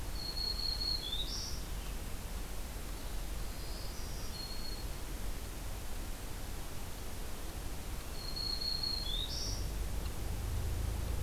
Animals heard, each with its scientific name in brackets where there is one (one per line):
Black-throated Green Warbler (Setophaga virens)